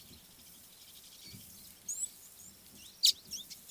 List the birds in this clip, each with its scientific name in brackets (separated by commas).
Chestnut Weaver (Ploceus rubiginosus), Red-cheeked Cordonbleu (Uraeginthus bengalus), Red-billed Firefinch (Lagonosticta senegala)